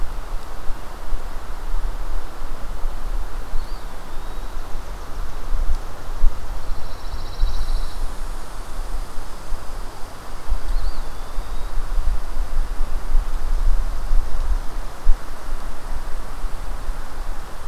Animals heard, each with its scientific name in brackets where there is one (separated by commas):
Chipping Sparrow (Spizella passerina), Pine Warbler (Setophaga pinus), Eastern Wood-Pewee (Contopus virens)